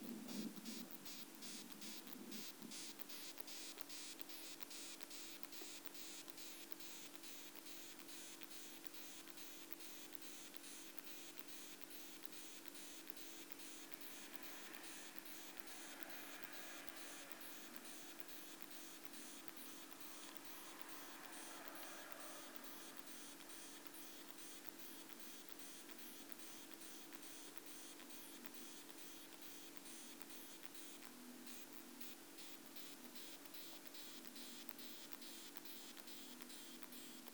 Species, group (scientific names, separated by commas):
Isophya kraussii, Orthoptera